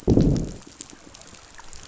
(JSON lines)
{"label": "biophony, growl", "recorder": "SoundTrap 500"}